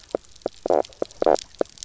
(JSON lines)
{"label": "biophony, knock croak", "recorder": "SoundTrap 300"}